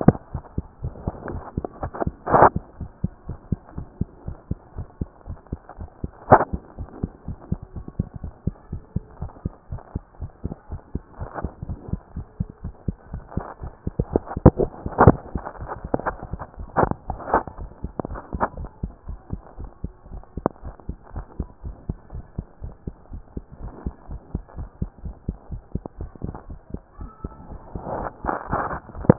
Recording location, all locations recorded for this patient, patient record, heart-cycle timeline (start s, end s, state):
mitral valve (MV)
aortic valve (AV)+pulmonary valve (PV)+tricuspid valve (TV)+mitral valve (MV)
#Age: Child
#Sex: Female
#Height: 112.0 cm
#Weight: 20.6 kg
#Pregnancy status: False
#Murmur: Absent
#Murmur locations: nan
#Most audible location: nan
#Systolic murmur timing: nan
#Systolic murmur shape: nan
#Systolic murmur grading: nan
#Systolic murmur pitch: nan
#Systolic murmur quality: nan
#Diastolic murmur timing: nan
#Diastolic murmur shape: nan
#Diastolic murmur grading: nan
#Diastolic murmur pitch: nan
#Diastolic murmur quality: nan
#Outcome: Normal
#Campaign: 2014 screening campaign
0.18	0.34	diastole
0.34	0.44	S1
0.44	0.54	systole
0.54	0.66	S2
0.66	0.82	diastole
0.82	0.94	S1
0.94	1.04	systole
1.04	1.16	S2
1.16	1.30	diastole
1.30	1.44	S1
1.44	1.56	systole
1.56	1.68	S2
1.68	1.82	diastole
1.82	1.92	S1
1.92	2.02	systole
2.02	2.14	S2
2.14	2.32	diastole
2.32	2.50	S1
2.50	2.54	systole
2.54	2.64	S2
2.64	2.80	diastole
2.80	2.90	S1
2.90	3.00	systole
3.00	3.12	S2
3.12	3.28	diastole
3.28	3.38	S1
3.38	3.48	systole
3.48	3.60	S2
3.60	3.76	diastole
3.76	3.86	S1
3.86	3.96	systole
3.96	4.10	S2
4.10	4.26	diastole
4.26	4.36	S1
4.36	4.46	systole
4.46	4.60	S2
4.60	4.76	diastole
4.76	4.88	S1
4.88	5.00	systole
5.00	5.10	S2
5.10	5.28	diastole
5.28	5.38	S1
5.38	5.52	systole
5.52	5.62	S2
5.62	5.80	diastole
5.80	5.88	S1
5.88	6.00	systole
6.00	6.14	S2
6.14	6.30	diastole
6.30	6.46	S1
6.46	6.52	systole
6.52	6.62	S2
6.62	6.78	diastole
6.78	6.90	S1
6.90	7.02	systole
7.02	7.12	S2
7.12	7.28	diastole
7.28	7.38	S1
7.38	7.48	systole
7.48	7.60	S2
7.60	7.74	diastole
7.74	7.86	S1
7.86	7.98	systole
7.98	8.08	S2
8.08	8.22	diastole
8.22	8.32	S1
8.32	8.42	systole
8.42	8.56	S2
8.56	8.72	diastole
8.72	8.82	S1
8.82	8.92	systole
8.92	9.04	S2
9.04	9.20	diastole
9.20	9.32	S1
9.32	9.46	systole
9.46	9.54	S2
9.54	9.72	diastole
9.72	9.82	S1
9.82	9.96	systole
9.96	10.06	S2
10.06	10.22	diastole
10.22	10.32	S1
10.32	10.44	systole
10.44	10.56	S2
10.56	10.72	diastole
10.72	10.82	S1
10.82	10.94	systole
10.94	11.02	S2
11.02	11.20	diastole
11.20	11.30	S1
11.30	11.42	systole
11.42	11.54	S2
11.54	11.68	diastole
11.68	11.80	S1
11.80	11.92	systole
11.92	12.00	S2
12.00	12.14	diastole
12.14	12.26	S1
12.26	12.36	systole
12.36	12.50	S2
12.50	12.64	diastole
12.64	12.74	S1
12.74	12.84	systole
12.84	12.98	S2
12.98	13.12	diastole
13.12	13.24	S1
13.24	13.36	systole
13.36	13.46	S2
13.46	13.62	diastole
13.62	13.72	S1
13.72	13.82	systole
13.82	13.94	S2
13.94	14.10	diastole
14.10	14.24	S1
14.24	14.34	systole
14.34	14.44	S2
14.44	14.58	diastole
14.58	14.70	S1
14.70	14.78	systole
14.78	14.84	S2
14.84	15.00	diastole
15.00	15.18	S1
15.18	15.32	systole
15.32	15.46	S2
15.46	15.60	diastole
15.60	15.72	S1
15.72	15.82	systole
15.82	15.92	S2
15.92	16.06	diastole
16.06	16.20	S1
16.20	16.30	systole
16.30	16.42	S2
16.42	16.58	diastole
16.58	16.70	S1
16.70	16.76	systole
16.76	16.92	S2
16.92	17.08	diastole
17.08	17.22	S1
17.22	17.32	systole
17.32	17.44	S2
17.44	17.58	diastole
17.58	17.72	S1
17.72	17.84	systole
17.84	17.96	S2
17.96	18.10	diastole
18.10	18.22	S1
18.22	18.32	systole
18.32	18.44	S2
18.44	18.56	diastole
18.56	18.70	S1
18.70	18.80	systole
18.80	18.94	S2
18.94	19.08	diastole
19.08	19.20	S1
19.20	19.32	systole
19.32	19.44	S2
19.44	19.58	diastole
19.58	19.70	S1
19.70	19.82	systole
19.82	19.92	S2
19.92	20.10	diastole
20.10	20.24	S1
20.24	20.38	systole
20.38	20.50	S2
20.50	20.64	diastole
20.64	20.76	S1
20.76	20.88	systole
20.88	21.00	S2
21.00	21.14	diastole
21.14	21.26	S1
21.26	21.38	systole
21.38	21.48	S2
21.48	21.64	diastole
21.64	21.76	S1
21.76	21.88	systole
21.88	22.00	S2
22.00	22.14	diastole
22.14	22.26	S1
22.26	22.36	systole
22.36	22.46	S2
22.46	22.62	diastole
22.62	22.74	S1
22.74	22.86	systole
22.86	22.94	S2
22.94	23.12	diastole
23.12	23.24	S1
23.24	23.34	systole
23.34	23.44	S2
23.44	23.62	diastole
23.62	23.74	S1
23.74	23.84	systole
23.84	23.94	S2
23.94	24.10	diastole
24.10	24.22	S1
24.22	24.32	systole
24.32	24.42	S2
24.42	24.56	diastole
24.56	24.70	S1
24.70	24.80	systole
24.80	24.90	S2
24.90	25.04	diastole
25.04	25.16	S1
25.16	25.26	systole
25.26	25.36	S2
25.36	25.50	diastole
25.50	25.64	S1
25.64	25.74	systole
25.74	25.84	S2
25.84	26.00	diastole
26.00	26.12	S1
26.12	26.24	systole
26.24	26.36	S2
26.36	26.48	diastole
26.48	26.60	S1
26.60	26.74	systole
26.74	26.82	S2
26.82	27.00	diastole
27.00	27.12	S1
27.12	27.24	systole
27.24	27.36	S2
27.36	27.50	diastole
27.50	27.62	S1
27.62	27.74	systole
27.74	27.84	S2
27.84	27.96	diastole
27.96	28.10	S1
28.10	28.24	systole
28.24	28.38	S2
28.38	28.50	diastole
28.50	28.64	S1
28.64	28.70	systole
28.70	28.82	S2
28.82	28.96	diastole
28.96	29.08	S1
29.08	29.10	systole
29.10	29.18	S2